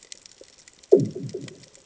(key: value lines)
label: anthrophony, bomb
recorder: HydroMoth